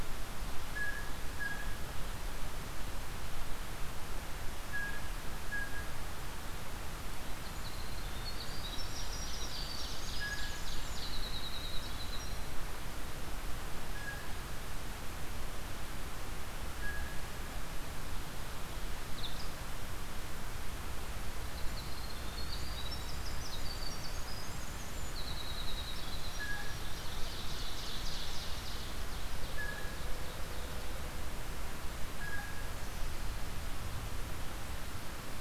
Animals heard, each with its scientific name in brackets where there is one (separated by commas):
Blue Jay (Cyanocitta cristata), Ovenbird (Seiurus aurocapilla), Winter Wren (Troglodytes hiemalis), Black-throated Green Warbler (Setophaga virens)